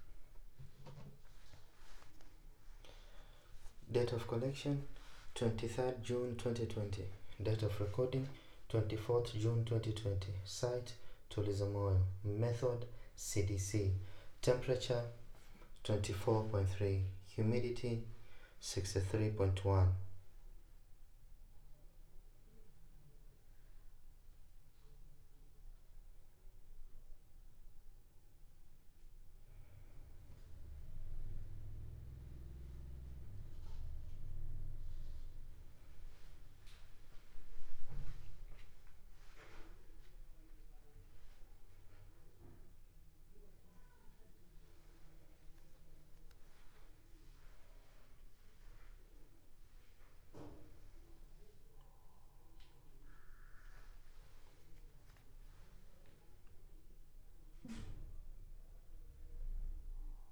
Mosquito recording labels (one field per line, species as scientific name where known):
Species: no mosquito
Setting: cup